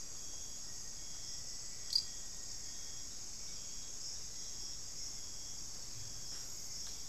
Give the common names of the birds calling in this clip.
Hauxwell's Thrush, Black-faced Antthrush